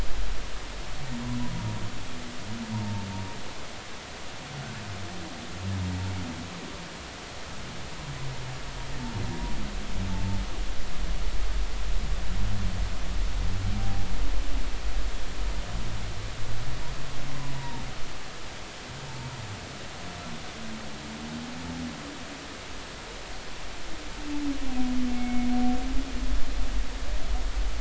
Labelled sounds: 2.7	3.1	humpback whale, 0.86 to 0.99 kHz
10.1	10.4	humpback whale, 0.80 to 0.93 kHz
13.8	14.1	humpback whale, 0.80 to 0.83 kHz
17.5	17.8	humpback whale, 0.83 to 0.99 kHz
25.1	25.5	humpback whale, 2.1 to 2.3 kHz

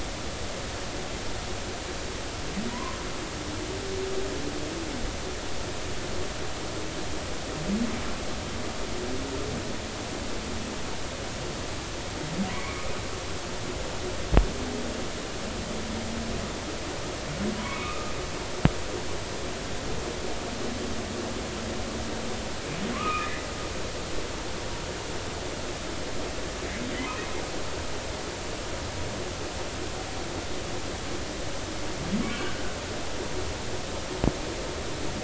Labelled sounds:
2.7	3.0	humpback whale, 0.93 to 1.1 kHz
12.5	12.8	humpback whale, 2.1 to 2.4 kHz
17.6	18.1	humpback whale, 0.96 to 2.7 kHz
22.9	23.3	humpback whale, 0.99 to 2.6 kHz
32.2	32.8	humpback whale, 1.4 to 2.4 kHz

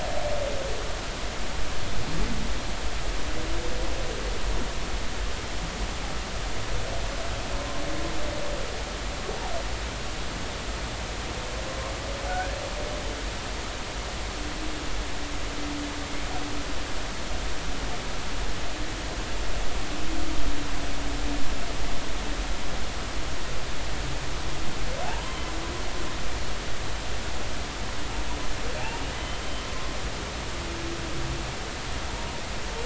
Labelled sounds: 7.6	7.8	humpback whale, 0.99 to 1.1 kHz
12.3	12.6	humpback whale, 1.4 to 1.8 kHz
25.0	25.4	humpback whale, 0.80 to 1.1 kHz
30.4	30.7	humpback whale, 3.0 to 3.1 kHz

